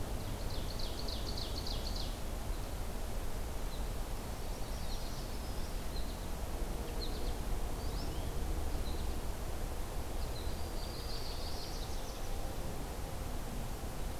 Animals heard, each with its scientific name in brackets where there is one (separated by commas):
American Goldfinch (Spinus tristis), Ovenbird (Seiurus aurocapilla), Black-throated Green Warbler (Setophaga virens)